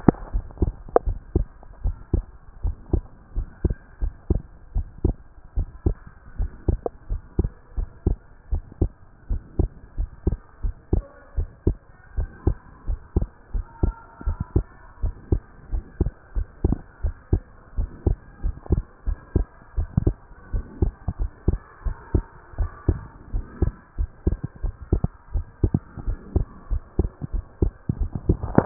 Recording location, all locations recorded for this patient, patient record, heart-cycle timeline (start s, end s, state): pulmonary valve (PV)
aortic valve (AV)+pulmonary valve (PV)+tricuspid valve (TV)+mitral valve (MV)
#Age: Child
#Sex: Male
#Height: 136.0 cm
#Weight: 30.9 kg
#Pregnancy status: False
#Murmur: Absent
#Murmur locations: nan
#Most audible location: nan
#Systolic murmur timing: nan
#Systolic murmur shape: nan
#Systolic murmur grading: nan
#Systolic murmur pitch: nan
#Systolic murmur quality: nan
#Diastolic murmur timing: nan
#Diastolic murmur shape: nan
#Diastolic murmur grading: nan
#Diastolic murmur pitch: nan
#Diastolic murmur quality: nan
#Outcome: Abnormal
#Campaign: 2014 screening campaign
0.00	0.14	S2
0.14	0.38	diastole
0.38	0.46	S1
0.46	0.58	systole
0.58	0.74	S2
0.74	1.04	diastole
1.04	1.18	S1
1.18	1.34	systole
1.34	1.50	S2
1.50	1.82	diastole
1.82	1.96	S1
1.96	2.16	systole
2.16	2.28	S2
2.28	2.62	diastole
2.62	2.76	S1
2.76	2.90	systole
2.90	3.04	S2
3.04	3.34	diastole
3.34	3.48	S1
3.48	3.62	systole
3.62	3.76	S2
3.76	4.00	diastole
4.00	4.14	S1
4.14	4.28	systole
4.28	4.42	S2
4.42	4.74	diastole
4.74	4.88	S1
4.88	5.02	systole
5.02	5.16	S2
5.16	5.54	diastole
5.54	5.68	S1
5.68	5.84	systole
5.84	5.98	S2
5.98	6.36	diastole
6.36	6.52	S1
6.52	6.66	systole
6.66	6.80	S2
6.80	7.08	diastole
7.08	7.22	S1
7.22	7.36	systole
7.36	7.50	S2
7.50	7.76	diastole
7.76	7.90	S1
7.90	8.10	systole
8.10	8.22	S2
8.22	8.50	diastole
8.50	8.64	S1
8.64	8.78	systole
8.78	8.92	S2
8.92	9.28	diastole
9.28	9.42	S1
9.42	9.56	systole
9.56	9.70	S2
9.70	9.96	diastole
9.96	10.10	S1
10.10	10.24	systole
10.24	10.38	S2
10.38	10.62	diastole
10.62	10.76	S1
10.76	10.94	systole
10.94	11.08	S2
11.08	11.36	diastole
11.36	11.50	S1
11.50	11.64	systole
11.64	11.78	S2
11.78	12.16	diastole
12.16	12.30	S1
12.30	12.44	systole
12.44	12.58	S2
12.58	12.86	diastole
12.86	13.00	S1
13.00	13.14	systole
13.14	13.28	S2
13.28	13.52	diastole
13.52	13.66	S1
13.66	13.80	systole
13.80	13.94	S2
13.94	14.24	diastole
14.24	14.38	S1
14.38	14.54	systole
14.54	14.66	S2
14.66	15.02	diastole
15.02	15.16	S1
15.16	15.30	systole
15.30	15.44	S2
15.44	15.72	diastole
15.72	15.82	S1
15.82	15.98	systole
15.98	16.12	S2
16.12	16.36	diastole
16.36	16.48	S1
16.48	16.66	systole
16.66	16.78	S2
16.78	17.02	diastole
17.02	17.16	S1
17.16	17.30	systole
17.30	17.44	S2
17.44	17.76	diastole
17.76	17.90	S1
17.90	18.04	systole
18.04	18.18	S2
18.18	18.44	diastole
18.44	18.56	S1
18.56	18.70	systole
18.70	18.84	S2
18.84	19.08	diastole
19.08	19.20	S1
19.20	19.34	systole
19.34	19.48	S2
19.48	19.76	diastole
19.76	19.90	S1
19.90	20.04	systole
20.04	20.18	S2
20.18	20.52	diastole
20.52	20.66	S1
20.66	20.80	systole
20.80	20.94	S2
20.94	21.20	diastole
21.20	21.30	S1
21.30	21.46	systole
21.46	21.60	S2
21.60	21.84	diastole
21.84	21.98	S1
21.98	22.12	systole
22.12	22.26	S2
22.26	22.58	diastole
22.58	22.72	S1
22.72	22.86	systole
22.86	23.00	S2
23.00	23.30	diastole
23.30	23.44	S1
23.44	23.60	systole
23.60	23.74	S2
23.74	23.98	diastole
23.98	24.12	S1
24.12	24.22	systole
24.22	24.38	S2
24.38	24.62	diastole
24.62	24.74	S1
24.74	24.90	systole
24.90	25.02	S2
25.02	25.34	diastole
25.34	25.48	S1
25.48	25.62	systole
25.62	25.72	S2
25.72	26.06	diastole
26.06	26.18	S1
26.18	26.34	systole
26.34	26.46	S2
26.46	26.70	diastole
26.70	26.84	S1
26.84	26.94	systole
26.94	27.06	S2
27.06	27.32	diastole
27.32	27.44	S1
27.44	27.60	systole
27.60	27.74	S2
27.74	28.00	diastole
28.00	28.14	S1
28.14	28.28	systole
28.28	28.42	S2
28.42	28.66	diastole